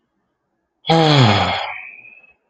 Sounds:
Sigh